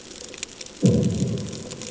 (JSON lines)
{"label": "anthrophony, bomb", "recorder": "HydroMoth"}